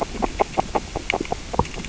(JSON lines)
{"label": "biophony, grazing", "recorder": "SoundTrap 600 or HydroMoth"}